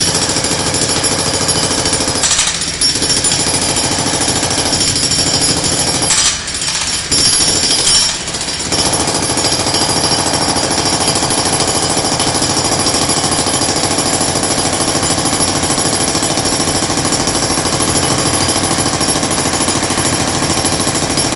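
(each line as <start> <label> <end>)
0.0 A loud jackhammer is repeating outside. 6.3
2.5 A jackhammer echoing outside. 2.8
6.3 A jackhammer echoing outside. 7.1
7.1 A loud jackhammer is repeating outside. 21.4
8.2 A jackhammer echoing outside. 8.7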